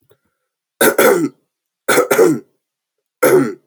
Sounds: Throat clearing